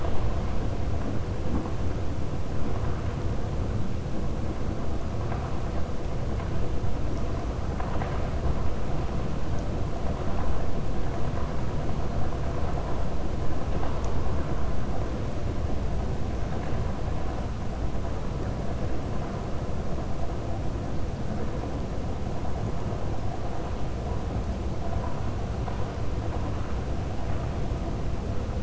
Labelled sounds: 7.6	8.3	vessel noise, 0.73 to 3.1 kHz

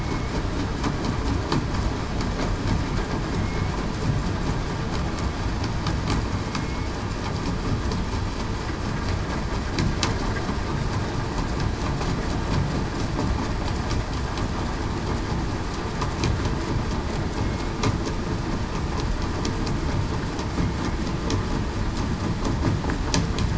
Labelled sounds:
6.6	6.9	killer whale, southern resident, 2.1 to 2.3 kHz
17.3	17.7	killer whale, southern resident, 2.1 to 2.2 kHz

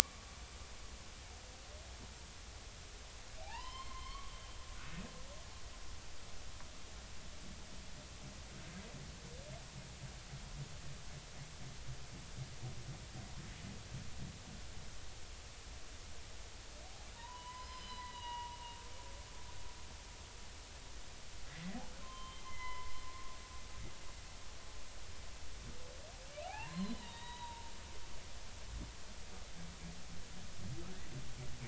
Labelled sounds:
1.0	1.4	humpback whale, 1.1 to 1.3 kHz
3.4	4.3	humpback whale, 0.80 to 5.3 kHz
17.2	18.6	humpback whale, 0.86 to 5.2 kHz
22.0	22.9	humpback whale, 0.90 to 3.2 kHz
26.4	27.5	humpback whale, 0.80 to 4.2 kHz
28.0	28.7	humpback whale, 0.86 to 1.0 kHz

